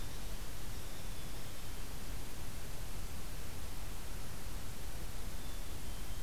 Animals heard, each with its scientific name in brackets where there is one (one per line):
Black-capped Chickadee (Poecile atricapillus)
Hairy Woodpecker (Dryobates villosus)